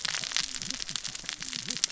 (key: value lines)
label: biophony, cascading saw
recorder: SoundTrap 600 or HydroMoth